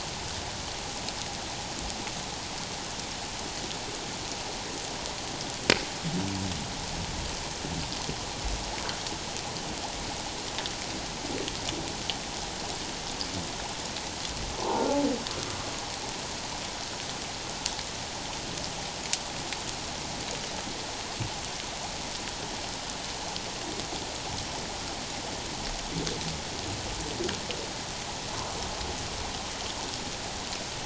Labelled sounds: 14.6	15.0	humpback whale, 0.78 to 1.5 kHz

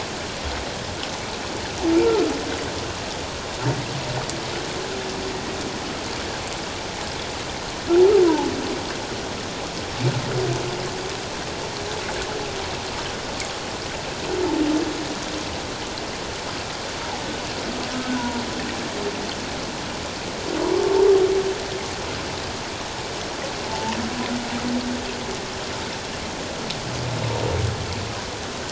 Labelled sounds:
8.2	8.5	humpback whale, 0.81 to 1.1 kHz
18.1	18.3	humpback whale, 1.4 to 1.5 kHz
23.6	24.0	humpback whale, 0.81 to 1.0 kHz

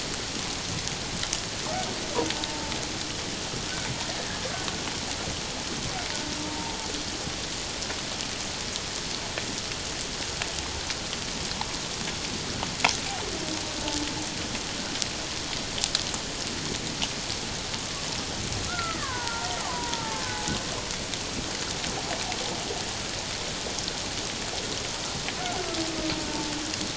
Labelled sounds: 2.3	2.6	killer whale, Bigg's (transient), 0.84 to 0.94 kHz
6.4	6.8	killer whale, Bigg's (transient), 0.88 to 1.0 kHz
18.7	20.4	killer whale, Bigg's (transient), 0.81 to 2.0 kHz
26.3	26.5	killer whale, Bigg's (transient), 0.84 to 0.94 kHz

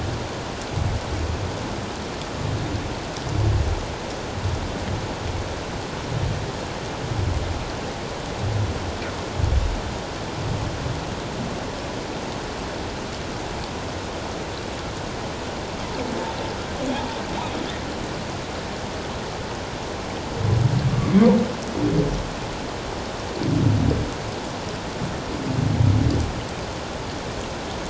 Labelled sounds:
20.9	21.1	humpback whale, 1.1 to 1.2 kHz

